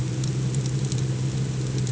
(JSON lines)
{"label": "anthrophony, boat engine", "recorder": "HydroMoth"}